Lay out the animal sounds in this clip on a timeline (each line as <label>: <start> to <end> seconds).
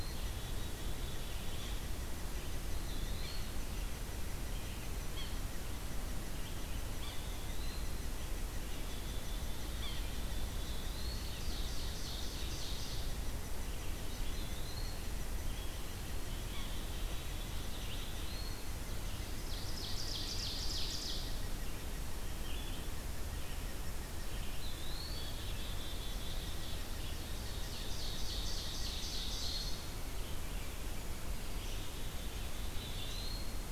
Black-capped Chickadee (Poecile atricapillus): 0.0 to 2.1 seconds
unidentified call: 0.0 to 23.8 seconds
Red-eyed Vireo (Vireo olivaceus): 0.0 to 33.3 seconds
Eastern Wood-Pewee (Contopus virens): 2.7 to 3.6 seconds
Yellow-bellied Sapsucker (Sphyrapicus varius): 5.1 to 5.4 seconds
Eastern Wood-Pewee (Contopus virens): 6.9 to 8.1 seconds
Yellow-bellied Sapsucker (Sphyrapicus varius): 7.0 to 7.3 seconds
Black-capped Chickadee (Poecile atricapillus): 8.8 to 10.6 seconds
Yellow-bellied Sapsucker (Sphyrapicus varius): 9.8 to 10.0 seconds
Eastern Wood-Pewee (Contopus virens): 10.5 to 11.3 seconds
Ovenbird (Seiurus aurocapilla): 10.9 to 13.4 seconds
Eastern Wood-Pewee (Contopus virens): 14.3 to 15.1 seconds
Black-capped Chickadee (Poecile atricapillus): 16.3 to 18.1 seconds
Eastern Wood-Pewee (Contopus virens): 17.9 to 18.8 seconds
Ovenbird (Seiurus aurocapilla): 19.3 to 21.7 seconds
Eastern Wood-Pewee (Contopus virens): 24.5 to 25.5 seconds
Black-capped Chickadee (Poecile atricapillus): 25.2 to 27.3 seconds
Ovenbird (Seiurus aurocapilla): 27.2 to 30.1 seconds
Black-capped Chickadee (Poecile atricapillus): 31.6 to 33.0 seconds
Eastern Wood-Pewee (Contopus virens): 32.7 to 33.7 seconds